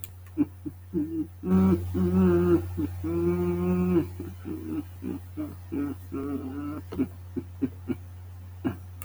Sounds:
Sigh